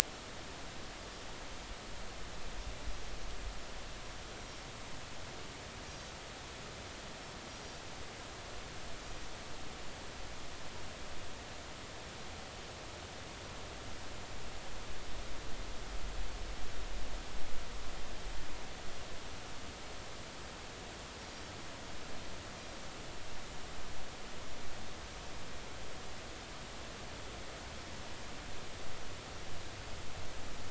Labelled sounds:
5.8	6.1	Pacific white-sided dolphin, 5.5 to 5.8 kHz

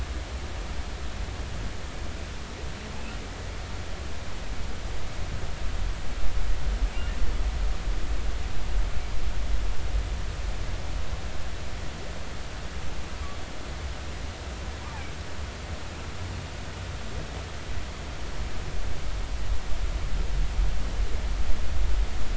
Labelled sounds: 14.8	15.1	humpback whale, 2.2 to 2.5 kHz

